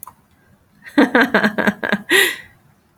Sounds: Laughter